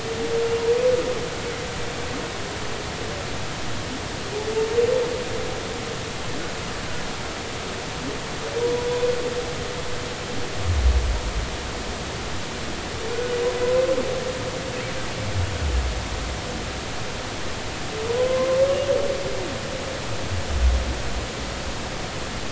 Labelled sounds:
18.1	18.5	humpback whale, 0.93 to 1.1 kHz

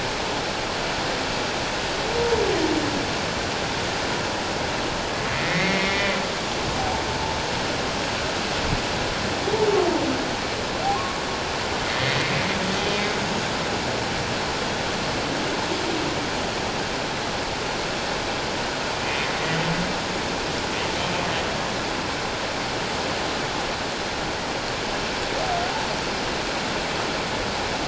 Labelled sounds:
5.3	7.0	humpback whale, 0.78 to 2.3 kHz
10.9	11.2	humpback whale, 1.0 to 1.2 kHz
11.8	12.3	humpback whale, 1.8 to 2.2 kHz

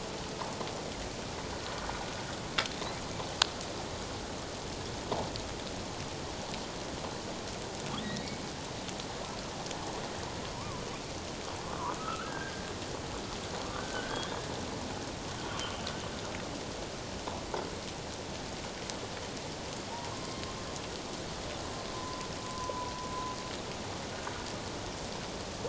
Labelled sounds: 8.0	8.3	humpback whale, 1.8 to 2.0 kHz
10.5	12.7	humpback whale, 0.91 to 1.7 kHz
13.7	14.2	humpback whale, 1.3 to 1.7 kHz
20.1	20.5	humpback whale, 1.0 to 1.1 kHz
21.9	23.1	humpback whale, 0.94 to 1.2 kHz

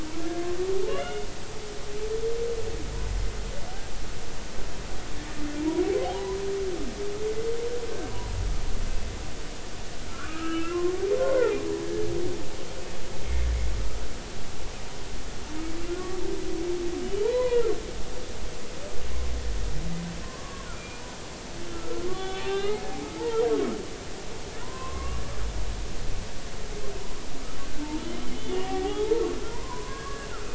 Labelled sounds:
0.9	1.3	humpback whale, 2.0 to 2.9 kHz
8.1	8.3	humpback whale, 0.93 to 1.1 kHz
10.1	11.6	humpback whale, 0.80 to 2.8 kHz
16.0	16.2	humpback whale, 1.1 to 1.2 kHz
17.2	17.7	humpback whale, 0.90 to 2.1 kHz
20.2	21.0	humpback whale, 0.99 to 2.5 kHz
21.7	23.3	humpback whale, 0.80 to 3.9 kHz
24.6	25.2	humpback whale, 0.93 to 1.2 kHz
28.5	30.5	humpback whale, 0.80 to 2.0 kHz

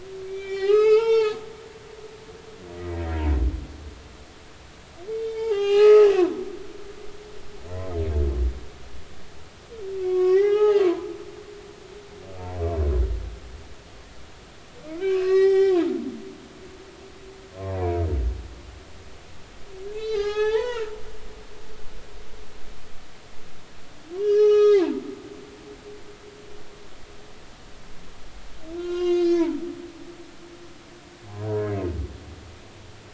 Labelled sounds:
0.3	1.4	humpback whale, 0.80 to 6.8 kHz
2.8	3.0	humpback whale, 1.8 to 2.0 kHz
5.1	6.1	humpback whale, 0.80 to 5.0 kHz
10.0	11.1	humpback whale, 0.80 to 5.9 kHz
15.1	15.8	humpback whale, 0.80 to 7.8 kHz
19.9	20.9	humpback whale, 0.80 to 5.6 kHz
24.2	25.0	humpback whale, 0.80 to 6.8 kHz
28.8	29.5	humpback whale, 0.99 to 6.1 kHz

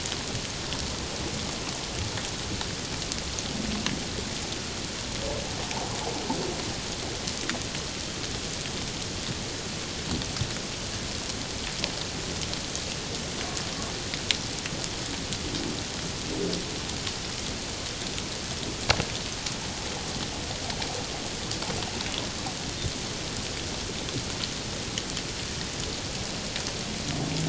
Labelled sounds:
5.7	6.0	humpback whale, 0.78 to 0.97 kHz

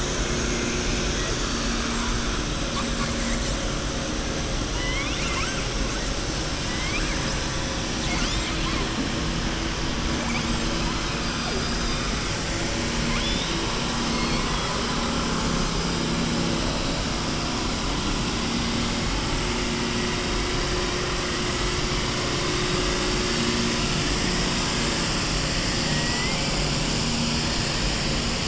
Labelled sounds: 4.7	5.6	killer whale, southern resident, 1.0 to 3.7 kHz
6.6	7.2	killer whale, southern resident, 1.5 to 4.9 kHz
13.0	13.6	killer whale, southern resident, 1.4 to 4.1 kHz
14.0	14.8	killer whale, southern resident, 0.96 to 5.0 kHz
25.8	26.4	killer whale, southern resident, 0.94 to 3.1 kHz

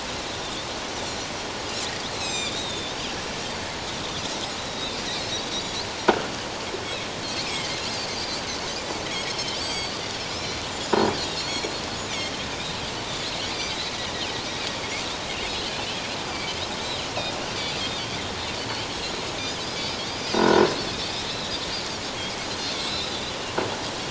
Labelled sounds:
2.1	2.9	Pacific white-sided dolphin, 2.2 to 7.9 kHz
4.6	5.0	Pacific white-sided dolphin, 3.5 to 4.0 kHz
6.1	6.3	croaking sound likely from a nearby submerged object, 1.2 to 1.7 kHz
7.4	9.9	Pacific white-sided dolphin, 2.0 to 7.8 kHz
10.3	11.7	Pacific white-sided dolphin, 3.8 to 5.7 kHz
12.6	12.8	Pacific white-sided dolphin, 3.6 to 4.1 kHz
13.5	13.8	Pacific white-sided dolphin, 4.5 to 4.9 kHz
16.2	17.7	Pacific white-sided dolphin, 2.2 to 4.9 kHz
18.6	18.8	Pacific white-sided dolphin, 4.3 to 4.6 kHz
20.3	20.6	croaking sound likely from a nearby submerged object, 1.4 to 1.5 kHz
21.3	23.2	Pacific white-sided dolphin, 3.2 to 5.4 kHz

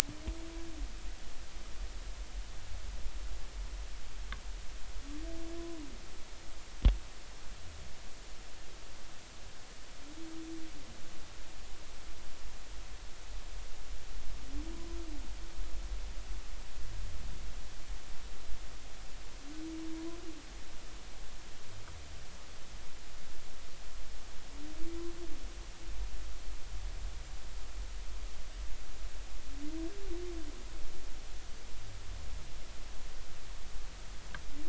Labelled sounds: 19.9	20.2	humpback whale, 0.93 to 1.1 kHz

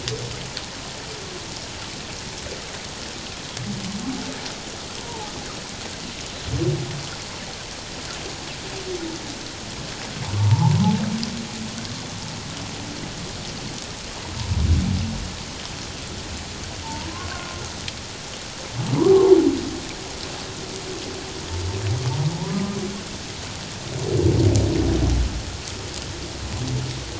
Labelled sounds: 5.0	5.3	humpback whale, 0.78 to 1.0 kHz
10.4	10.8	humpback whale, 0.78 to 1.1 kHz
16.8	17.5	humpback whale, 0.84 to 1.7 kHz

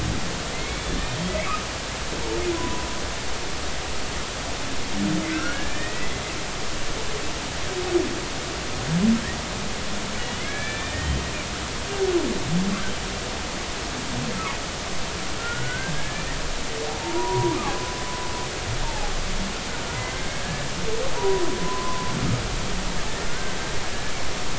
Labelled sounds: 0.5	1.3	humpback whale, 2.0 to 3.3 kHz
2.5	2.9	humpback whale, 0.93 to 1.1 kHz
5.3	6.1	humpback whale, 1.5 to 2.6 kHz
10.2	11.2	humpback whale, 1.6 to 3.2 kHz
15.4	16.2	humpback whale, 1.3 to 1.8 kHz
17.0	18.0	humpback whale, 0.86 to 1.3 kHz
18.8	19.1	humpback whale, 0.80 to 0.96 kHz
20.1	22.1	humpback whale, 0.93 to 1.8 kHz
23.3	23.6	humpback whale, 1.4 to 1.6 kHz

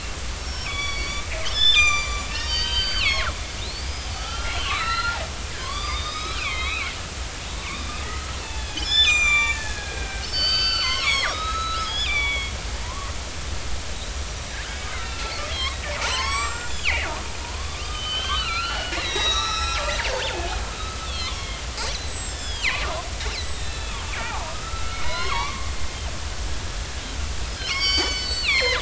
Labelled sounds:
0.4	5.2	killer whale, northern resident, 0.99 to 7.4 kHz
5.6	6.9	killer whale, northern resident, 0.96 to 6.2 kHz
7.6	13.1	killer whale, northern resident, 0.93 to 7.5 kHz
14.9	17.1	killer whale, northern resident, 0.83 to 8.0 kHz
17.4	20.6	killer whale, northern resident, 0.93 to 8.0 kHz
21.0	25.7	killer whale, northern resident, 0.80 to 8.0 kHz
27.5	28.8	killer whale, northern resident, 0.93 to 8.0 kHz

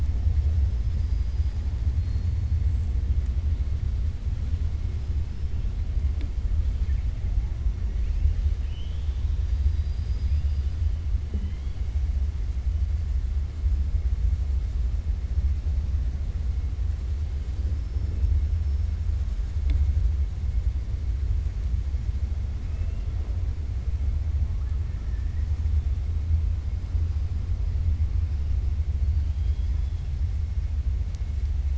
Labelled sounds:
0.6	1.6	killer whale, 4.0 to 5.9 kHz
8.5	10.7	killer whale, 1.9 to 5.7 kHz
22.6	23.1	killer whale, 1.9 to 2.8 kHz
24.9	25.5	killer whale, 1.1 to 2.0 kHz
29.1	30.0	killer whale, 2.8 to 4.6 kHz

